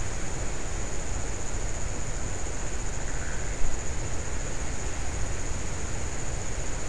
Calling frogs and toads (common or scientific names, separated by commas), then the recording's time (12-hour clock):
Pithecopus azureus
3:30am